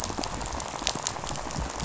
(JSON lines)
{"label": "biophony, rattle", "recorder": "SoundTrap 500"}